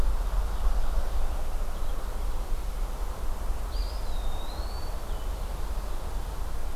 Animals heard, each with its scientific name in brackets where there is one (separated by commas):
Eastern Wood-Pewee (Contopus virens), Blue-headed Vireo (Vireo solitarius), Ovenbird (Seiurus aurocapilla)